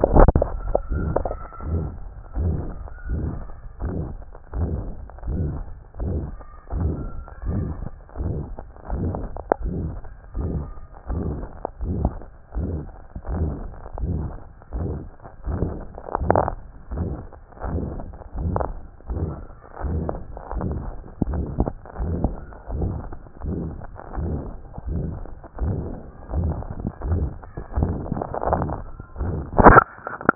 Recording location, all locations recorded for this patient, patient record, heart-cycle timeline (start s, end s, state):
other location
aortic valve (AV)+pulmonary valve (PV)+tricuspid valve (TV)+mitral valve (MV)+other location
#Age: nan
#Sex: Male
#Height: 163.0 cm
#Weight: 73.0 kg
#Pregnancy status: False
#Murmur: Present
#Murmur locations: aortic valve (AV)+mitral valve (MV)+pulmonary valve (PV)+other location+tricuspid valve (TV)
#Most audible location: mitral valve (MV)
#Systolic murmur timing: Holosystolic
#Systolic murmur shape: Decrescendo
#Systolic murmur grading: III/VI or higher
#Systolic murmur pitch: Medium
#Systolic murmur quality: Harsh
#Diastolic murmur timing: nan
#Diastolic murmur shape: nan
#Diastolic murmur grading: nan
#Diastolic murmur pitch: nan
#Diastolic murmur quality: nan
#Outcome: Abnormal
#Campaign: 2014 screening campaign
0.00	0.83	unannotated
0.83	0.92	diastole
0.92	1.06	S1
1.06	1.18	systole
1.18	1.32	S2
1.32	1.68	diastole
1.68	1.86	S1
1.86	1.98	systole
1.98	2.10	S2
2.10	2.38	diastole
2.38	2.58	S1
2.58	2.64	systole
2.64	2.74	S2
2.74	3.08	diastole
3.08	3.26	S1
3.26	3.36	systole
3.36	3.46	S2
3.46	3.82	diastole
3.82	3.94	S1
3.94	4.06	systole
4.06	4.18	S2
4.18	4.56	diastole
4.56	4.68	S1
4.68	4.80	systole
4.80	4.92	S2
4.92	5.28	diastole
5.28	5.48	S1
5.48	5.56	systole
5.56	5.64	S2
5.64	6.02	diastole
6.02	6.20	S1
6.20	6.28	systole
6.28	6.38	S2
6.38	6.74	diastole
6.74	6.94	S1
6.94	7.00	systole
7.00	7.10	S2
7.10	7.46	diastole
7.46	7.64	S1
7.64	7.78	systole
7.78	7.86	S2
7.86	8.20	diastole
8.20	8.36	S1
8.36	8.48	systole
8.48	8.56	S2
8.56	8.92	diastole
8.92	9.10	S1
9.10	9.20	systole
9.20	9.28	S2
9.28	9.62	diastole
9.62	9.74	S1
9.74	9.84	systole
9.84	9.96	S2
9.96	10.36	diastole
10.36	10.50	S1
10.50	10.58	systole
10.58	10.72	S2
10.72	11.10	diastole
11.10	11.22	S1
11.22	11.38	systole
11.38	11.46	S2
11.46	11.82	diastole
11.82	11.98	S1
11.98	12.02	systole
12.02	12.18	S2
12.18	12.56	diastole
12.56	12.70	S1
12.70	12.76	systole
12.76	12.86	S2
12.86	13.30	diastole
13.30	13.50	S1
13.50	13.60	systole
13.60	13.70	S2
13.70	14.02	diastole
14.02	14.20	S1
14.20	14.24	systole
14.24	14.36	S2
14.36	14.76	diastole
14.76	14.90	S1
14.90	15.00	systole
15.00	15.10	S2
15.10	15.48	diastole
15.48	15.62	S1
15.62	15.74	systole
15.74	15.82	S2
15.82	16.22	diastole
16.22	16.40	S1
16.40	16.46	systole
16.46	16.58	S2
16.58	16.94	diastole
16.94	17.10	S1
17.10	17.30	systole
17.30	17.32	S2
17.32	17.66	diastole
17.66	17.80	S1
17.80	17.88	systole
17.88	18.00	S2
18.00	18.38	diastole
18.38	18.56	S1
18.56	18.70	systole
18.70	18.78	S2
18.78	19.10	diastole
19.10	19.26	S1
19.26	19.32	systole
19.32	19.46	S2
19.46	19.84	diastole
19.84	20.02	S1
20.02	20.12	systole
20.12	20.22	S2
20.22	20.54	diastole
20.54	20.66	S1
20.66	20.74	systole
20.74	20.90	S2
20.90	21.28	diastole
21.28	21.44	S1
21.44	21.58	systole
21.58	21.68	S2
21.68	22.00	diastole
22.00	22.16	S1
22.16	22.24	systole
22.24	22.34	S2
22.34	22.74	diastole
22.74	22.92	S1
22.92	23.06	systole
23.06	23.12	S2
23.12	23.46	diastole
23.46	23.58	S1
23.58	23.66	systole
23.66	23.80	S2
23.80	24.18	diastole
24.18	24.36	S1
24.36	24.46	systole
24.46	24.56	S2
24.56	24.88	diastole
24.88	25.04	S1
25.04	25.12	systole
25.12	25.24	S2
25.24	25.62	diastole
25.62	25.78	S1
25.78	25.90	systole
25.90	25.98	S2
25.98	26.34	diastole
26.34	26.54	S1
26.54	26.78	systole
26.78	26.80	S2
26.80	27.08	diastole
27.08	27.28	S1
27.28	27.34	systole
27.34	27.42	S2
27.42	27.76	diastole
27.76	27.94	S1
27.94	28.10	systole
28.10	28.22	S2
28.22	28.48	diastole
28.48	28.64	S1
28.64	28.70	systole
28.70	28.80	S2
28.80	29.22	diastole
29.22	29.38	S1
29.38	29.45	systole
29.45	30.35	unannotated